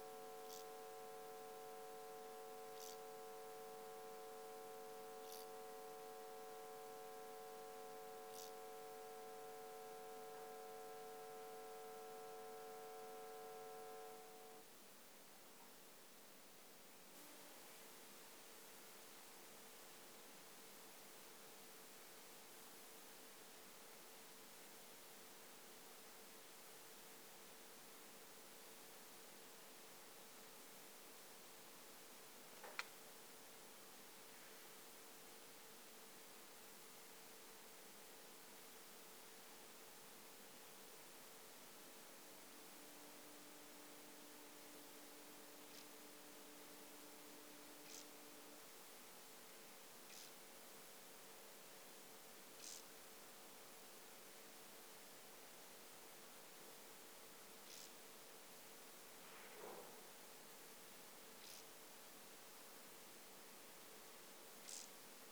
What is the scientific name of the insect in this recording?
Chorthippus brunneus